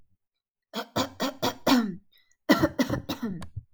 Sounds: Cough